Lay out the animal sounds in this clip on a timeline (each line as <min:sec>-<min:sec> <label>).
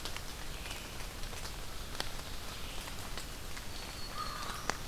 0:00.0-0:04.9 Red-eyed Vireo (Vireo olivaceus)
0:03.2-0:04.8 Black-throated Green Warbler (Setophaga virens)
0:04.0-0:04.9 American Crow (Corvus brachyrhynchos)